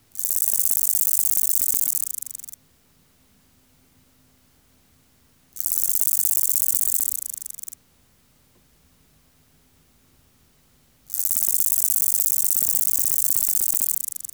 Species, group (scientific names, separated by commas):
Conocephalus fuscus, Orthoptera